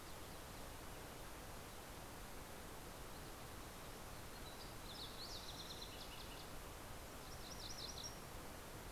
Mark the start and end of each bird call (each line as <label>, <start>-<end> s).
Fox Sparrow (Passerella iliaca), 2.9-7.0 s
MacGillivray's Warbler (Geothlypis tolmiei), 6.5-8.8 s